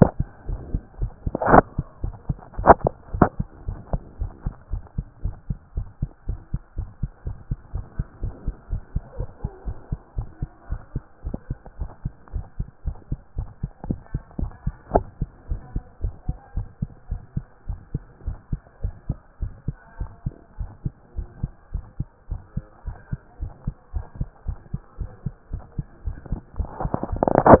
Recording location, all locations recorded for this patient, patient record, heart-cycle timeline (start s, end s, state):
tricuspid valve (TV)
aortic valve (AV)+pulmonary valve (PV)+tricuspid valve (TV)+mitral valve (MV)
#Age: Child
#Sex: Male
#Height: 124.0 cm
#Weight: 25.8 kg
#Pregnancy status: False
#Murmur: Present
#Murmur locations: mitral valve (MV)+tricuspid valve (TV)
#Most audible location: tricuspid valve (TV)
#Systolic murmur timing: Early-systolic
#Systolic murmur shape: Plateau
#Systolic murmur grading: I/VI
#Systolic murmur pitch: Low
#Systolic murmur quality: Harsh
#Diastolic murmur timing: nan
#Diastolic murmur shape: nan
#Diastolic murmur grading: nan
#Diastolic murmur pitch: nan
#Diastolic murmur quality: nan
#Outcome: Normal
#Campaign: 2014 screening campaign
0.00	3.53	unannotated
3.53	3.66	diastole
3.66	3.78	S1
3.78	3.92	systole
3.92	4.02	S2
4.02	4.20	diastole
4.20	4.32	S1
4.32	4.44	systole
4.44	4.54	S2
4.54	4.72	diastole
4.72	4.82	S1
4.82	4.96	systole
4.96	5.06	S2
5.06	5.24	diastole
5.24	5.34	S1
5.34	5.48	systole
5.48	5.58	S2
5.58	5.76	diastole
5.76	5.88	S1
5.88	6.00	systole
6.00	6.10	S2
6.10	6.28	diastole
6.28	6.40	S1
6.40	6.52	systole
6.52	6.60	S2
6.60	6.76	diastole
6.76	6.88	S1
6.88	7.02	systole
7.02	7.10	S2
7.10	7.26	diastole
7.26	7.36	S1
7.36	7.50	systole
7.50	7.58	S2
7.58	7.74	diastole
7.74	7.84	S1
7.84	7.98	systole
7.98	8.06	S2
8.06	8.22	diastole
8.22	8.34	S1
8.34	8.46	systole
8.46	8.54	S2
8.54	8.70	diastole
8.70	8.82	S1
8.82	8.94	systole
8.94	9.02	S2
9.02	9.18	diastole
9.18	9.28	S1
9.28	9.42	systole
9.42	9.50	S2
9.50	9.66	diastole
9.66	9.76	S1
9.76	9.90	systole
9.90	10.00	S2
10.00	10.16	diastole
10.16	10.28	S1
10.28	10.40	systole
10.40	10.50	S2
10.50	10.70	diastole
10.70	10.80	S1
10.80	10.94	systole
10.94	11.02	S2
11.02	11.24	diastole
11.24	11.36	S1
11.36	11.48	systole
11.48	11.58	S2
11.58	11.78	diastole
11.78	11.90	S1
11.90	12.04	systole
12.04	12.12	S2
12.12	12.34	diastole
12.34	12.46	S1
12.46	12.58	systole
12.58	12.68	S2
12.68	12.86	diastole
12.86	12.96	S1
12.96	13.10	systole
13.10	13.20	S2
13.20	13.36	diastole
13.36	13.48	S1
13.48	13.62	systole
13.62	13.70	S2
13.70	13.88	diastole
13.88	13.98	S1
13.98	14.12	systole
14.12	14.22	S2
14.22	14.40	diastole
14.40	14.52	S1
14.52	14.64	systole
14.64	14.74	S2
14.74	14.92	diastole
14.92	15.06	S1
15.06	15.20	systole
15.20	15.30	S2
15.30	15.50	diastole
15.50	15.60	S1
15.60	15.74	systole
15.74	15.84	S2
15.84	16.02	diastole
16.02	16.14	S1
16.14	16.26	systole
16.26	16.36	S2
16.36	16.56	diastole
16.56	16.68	S1
16.68	16.80	systole
16.80	16.90	S2
16.90	17.10	diastole
17.10	17.22	S1
17.22	17.36	systole
17.36	17.44	S2
17.44	17.68	diastole
17.68	17.78	S1
17.78	17.92	systole
17.92	18.02	S2
18.02	18.26	diastole
18.26	18.38	S1
18.38	18.50	systole
18.50	18.60	S2
18.60	18.82	diastole
18.82	18.94	S1
18.94	19.08	systole
19.08	19.18	S2
19.18	19.40	diastole
19.40	19.52	S1
19.52	19.66	systole
19.66	19.76	S2
19.76	19.98	diastole
19.98	20.10	S1
20.10	20.24	systole
20.24	20.34	S2
20.34	20.58	diastole
20.58	20.70	S1
20.70	20.84	systole
20.84	20.92	S2
20.92	21.16	diastole
21.16	21.28	S1
21.28	21.42	systole
21.42	21.50	S2
21.50	21.72	diastole
21.72	21.84	S1
21.84	21.98	systole
21.98	22.08	S2
22.08	22.30	diastole
22.30	22.42	S1
22.42	22.56	systole
22.56	22.64	S2
22.64	22.86	diastole
22.86	22.96	S1
22.96	23.10	systole
23.10	23.20	S2
23.20	23.40	diastole
23.40	23.52	S1
23.52	23.66	systole
23.66	23.74	S2
23.74	23.94	diastole
23.94	24.06	S1
24.06	24.18	systole
24.18	24.28	S2
24.28	24.46	diastole
24.46	24.58	S1
24.58	24.72	systole
24.72	24.80	S2
24.80	24.98	diastole
24.98	25.10	S1
25.10	25.24	systole
25.24	25.34	S2
25.34	25.52	diastole
25.52	25.62	S1
25.62	25.76	systole
25.76	25.86	S2
25.86	26.06	diastole
26.06	26.16	S1
26.16	26.30	systole
26.30	26.40	S2
26.40	26.58	diastole
26.58	27.60	unannotated